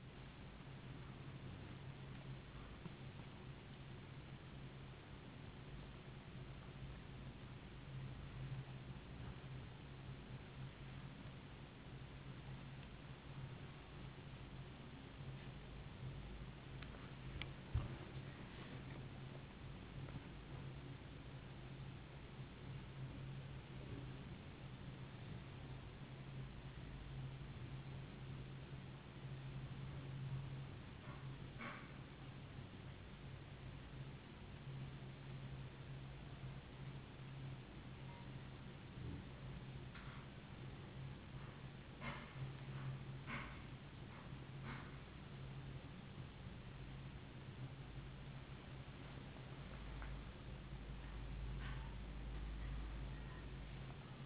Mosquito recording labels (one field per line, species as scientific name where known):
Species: no mosquito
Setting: insect culture